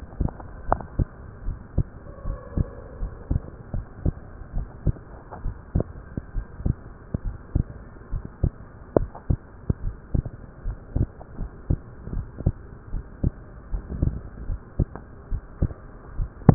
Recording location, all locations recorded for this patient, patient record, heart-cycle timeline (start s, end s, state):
pulmonary valve (PV)
aortic valve (AV)+pulmonary valve (PV)+tricuspid valve (TV)+mitral valve (MV)
#Age: Adolescent
#Sex: Male
#Height: 171.0 cm
#Weight: 50.2 kg
#Pregnancy status: False
#Murmur: Absent
#Murmur locations: nan
#Most audible location: nan
#Systolic murmur timing: nan
#Systolic murmur shape: nan
#Systolic murmur grading: nan
#Systolic murmur pitch: nan
#Systolic murmur quality: nan
#Diastolic murmur timing: nan
#Diastolic murmur shape: nan
#Diastolic murmur grading: nan
#Diastolic murmur pitch: nan
#Diastolic murmur quality: nan
#Outcome: Normal
#Campaign: 2015 screening campaign
0.00	0.66	unannotated
0.66	0.80	S1
0.80	0.96	systole
0.96	1.08	S2
1.08	1.44	diastole
1.44	1.58	S1
1.58	1.74	systole
1.74	1.88	S2
1.88	2.26	diastole
2.26	2.40	S1
2.40	2.54	systole
2.54	2.68	S2
2.68	3.00	diastole
3.00	3.14	S1
3.14	3.28	systole
3.28	3.42	S2
3.42	3.74	diastole
3.74	3.86	S1
3.86	4.02	systole
4.02	4.16	S2
4.16	4.54	diastole
4.54	4.68	S1
4.68	4.84	systole
4.84	4.96	S2
4.96	5.42	diastole
5.42	5.56	S1
5.56	5.74	systole
5.74	5.90	S2
5.90	6.32	diastole
6.32	6.46	S1
6.46	6.62	systole
6.62	6.78	S2
6.78	7.24	diastole
7.24	7.38	S1
7.38	7.52	systole
7.52	7.66	S2
7.66	8.08	diastole
8.08	8.24	S1
8.24	8.40	systole
8.40	8.54	S2
8.54	8.94	diastole
8.94	9.10	S1
9.10	9.26	systole
9.26	9.40	S2
9.40	9.82	diastole
9.82	9.96	S1
9.96	10.12	systole
10.12	10.26	S2
10.26	10.66	diastole
10.66	10.78	S1
10.78	10.94	systole
10.94	11.06	S2
11.06	11.38	diastole
11.38	11.48	S1
11.48	11.66	systole
11.66	11.80	S2
11.80	12.12	diastole
12.12	12.28	S1
12.28	12.44	systole
12.44	12.60	S2
12.60	12.92	diastole
12.92	13.06	S1
13.06	13.22	systole
13.22	13.38	S2
13.38	13.70	diastole
13.70	13.82	S1
13.82	14.00	systole
14.00	14.14	S2
14.14	14.46	diastole
14.46	14.60	S1
14.60	14.78	systole
14.78	14.92	S2
14.92	15.30	diastole
15.30	15.44	S1
15.44	15.58	systole
15.58	15.72	S2
15.72	16.16	diastole
16.16	16.32	S1
16.32	16.54	unannotated